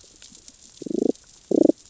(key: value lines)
label: biophony, damselfish
recorder: SoundTrap 600 or HydroMoth